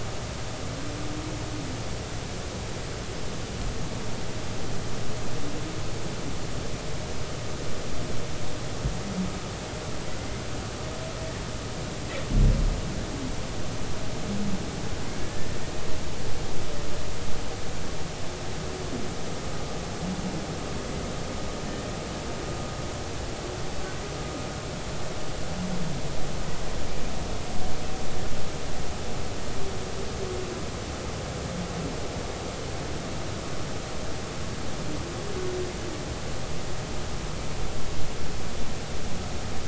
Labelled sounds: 15.2	15.5	humpback whale, 1.7 to 1.8 kHz

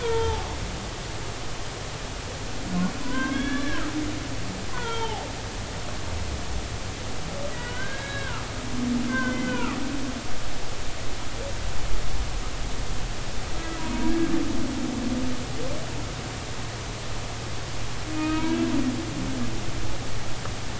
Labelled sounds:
0.0	0.5	humpback whale, 0.80 to 3.3 kHz
3.0	3.8	humpback whale, 0.93 to 3.5 kHz
4.7	5.3	humpback whale, 0.80 to 3.3 kHz
7.5	8.4	humpback whale, 1.2 to 4.0 kHz
9.1	9.8	humpback whale, 0.96 to 3.2 kHz
13.5	13.8	humpback whale, 1.2 to 1.3 kHz
18.1	18.6	humpback whale, 1.2 to 2.6 kHz

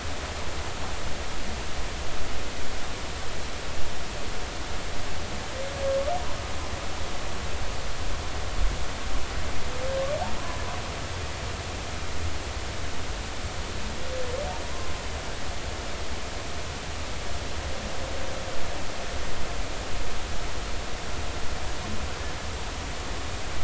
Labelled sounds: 14.6	14.9	humpback whale, 0.93 to 1.1 kHz

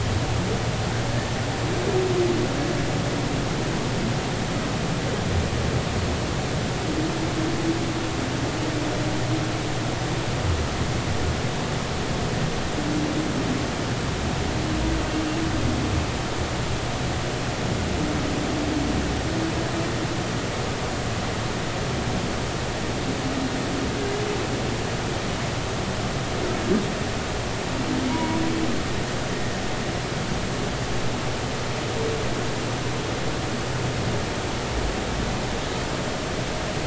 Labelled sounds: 28.1	28.4	humpback whale, 0.86 to 1.0 kHz

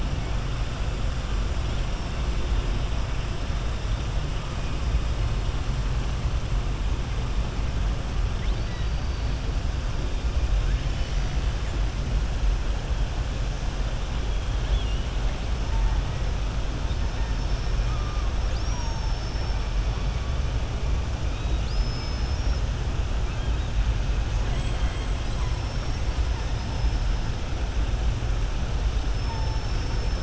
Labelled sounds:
8.3	9.3	killer whale, southern resident, 1.9 to 4.9 kHz
18.4	19.6	killer whale, southern resident, 4.1 to 6.9 kHz
21.3	22.6	killer whale, southern resident, 2.9 to 6.1 kHz
24.4	25.1	killer whale, southern resident, 0.94 to 4.0 kHz

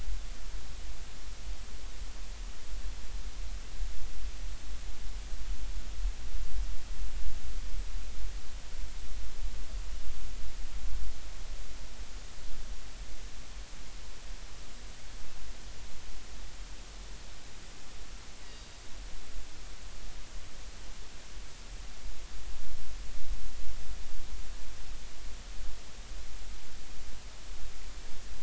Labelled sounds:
18.4	18.9	killer whale, northern resident, G clan, 3.7 to 4.8 kHz

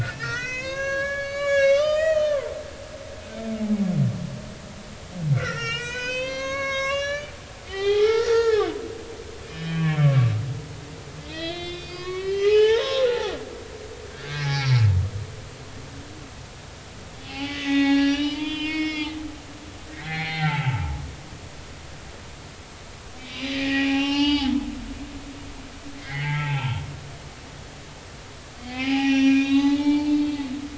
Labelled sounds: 0.0	2.4	humpback whale, 0.93 to 7.1 kHz
3.6	3.9	humpback whale, 0.80 to 0.90 kHz
5.3	7.3	humpback whale, 0.93 to 7.0 kHz
7.7	8.8	humpback whale, 0.80 to 4.5 kHz
9.4	10.4	humpback whale, 1.1 to 3.1 kHz
11.2	13.2	humpback whale, 0.80 to 5.4 kHz
14.1	14.8	humpback whale, 1.3 to 5.8 kHz
17.2	19.2	humpback whale, 0.80 to 6.0 kHz
19.9	21.0	humpback whale, 0.80 to 4.3 kHz
23.2	24.6	humpback whale, 0.80 to 5.8 kHz
26.0	26.8	humpback whale, 0.80 to 3.3 kHz
28.6	30.4	humpback whale, 0.80 to 5.8 kHz

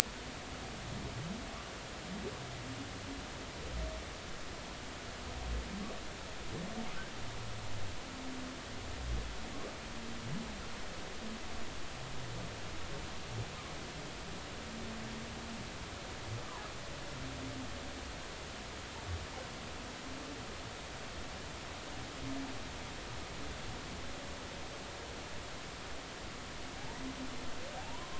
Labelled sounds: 27.8	28.1	humpback whale, 0.80 to 1.1 kHz

